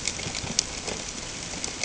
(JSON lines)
{"label": "ambient", "recorder": "HydroMoth"}